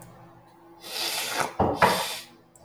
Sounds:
Sniff